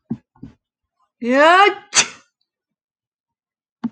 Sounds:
Sneeze